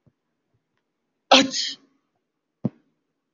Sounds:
Sneeze